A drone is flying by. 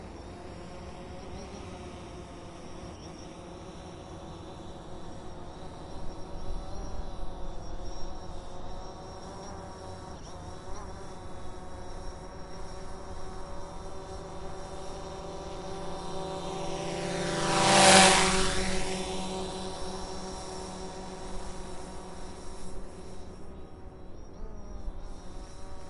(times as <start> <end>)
15.7 20.7